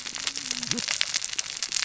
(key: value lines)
label: biophony, cascading saw
recorder: SoundTrap 600 or HydroMoth